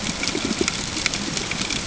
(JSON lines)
{"label": "ambient", "recorder": "HydroMoth"}